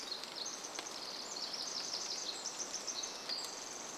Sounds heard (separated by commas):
Red-breasted Nuthatch song, Pacific Wren song, rain